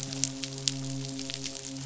{"label": "biophony, midshipman", "recorder": "SoundTrap 500"}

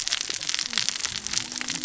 {"label": "biophony, cascading saw", "recorder": "SoundTrap 600 or HydroMoth"}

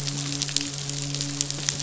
{"label": "biophony, midshipman", "recorder": "SoundTrap 500"}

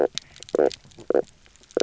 {"label": "biophony, knock croak", "recorder": "SoundTrap 300"}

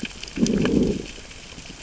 {"label": "biophony, growl", "recorder": "SoundTrap 600 or HydroMoth"}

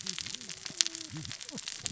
{"label": "biophony, cascading saw", "recorder": "SoundTrap 600 or HydroMoth"}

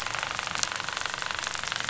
{"label": "anthrophony, boat engine", "recorder": "SoundTrap 500"}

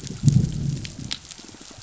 {"label": "biophony, growl", "recorder": "SoundTrap 500"}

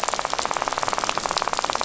{"label": "biophony, rattle", "recorder": "SoundTrap 500"}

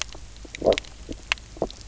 {"label": "biophony, stridulation", "recorder": "SoundTrap 300"}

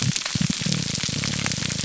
{"label": "biophony, grouper groan", "recorder": "SoundTrap 300"}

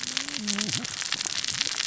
{"label": "biophony, cascading saw", "recorder": "SoundTrap 600 or HydroMoth"}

